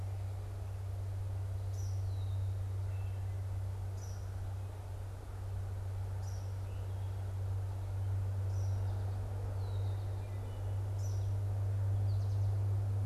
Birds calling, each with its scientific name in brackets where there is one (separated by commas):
Eastern Kingbird (Tyrannus tyrannus), American Goldfinch (Spinus tristis), Red-winged Blackbird (Agelaius phoeniceus), Wood Thrush (Hylocichla mustelina)